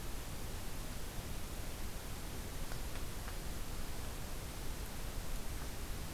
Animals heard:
forest ambience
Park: Acadia National Park